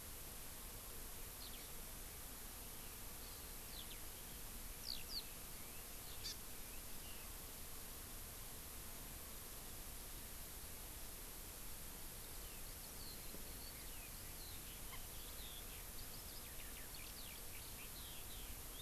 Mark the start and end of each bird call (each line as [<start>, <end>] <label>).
[1.31, 1.71] Eurasian Skylark (Alauda arvensis)
[3.21, 3.51] Hawaii Amakihi (Chlorodrepanis virens)
[3.61, 4.01] Eurasian Skylark (Alauda arvensis)
[4.81, 5.21] Eurasian Skylark (Alauda arvensis)
[6.21, 6.31] Hawaii Amakihi (Chlorodrepanis virens)
[12.21, 18.81] Eurasian Skylark (Alauda arvensis)